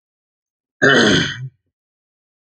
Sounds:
Throat clearing